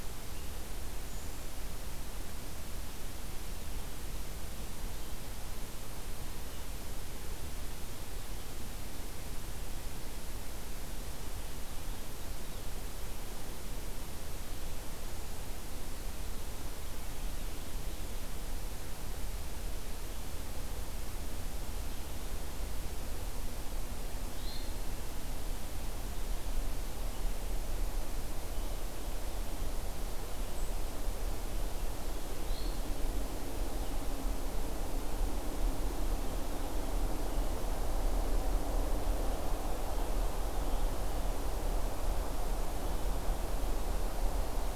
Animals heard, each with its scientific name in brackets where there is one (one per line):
Hermit Thrush (Catharus guttatus)